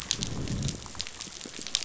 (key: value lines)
label: biophony, growl
recorder: SoundTrap 500

label: biophony
recorder: SoundTrap 500